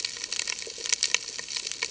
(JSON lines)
{"label": "ambient", "recorder": "HydroMoth"}